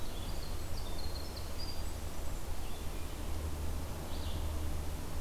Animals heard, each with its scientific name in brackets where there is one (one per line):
Winter Wren (Troglodytes hiemalis)